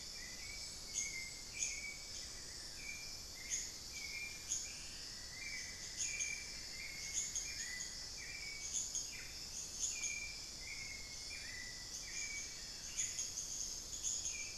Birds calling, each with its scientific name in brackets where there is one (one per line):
Cinnamon-throated Woodcreeper (Dendrexetastes rufigula)
unidentified bird
Hauxwell's Thrush (Turdus hauxwelli)
Amazonian Barred-Woodcreeper (Dendrocolaptes certhia)